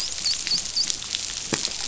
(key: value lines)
label: biophony, dolphin
recorder: SoundTrap 500